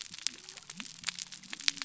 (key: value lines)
label: biophony
recorder: SoundTrap 300